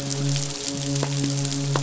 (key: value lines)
label: biophony, midshipman
recorder: SoundTrap 500